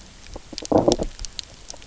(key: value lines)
label: biophony, low growl
recorder: SoundTrap 300